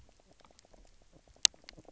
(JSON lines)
{"label": "biophony, knock croak", "recorder": "SoundTrap 300"}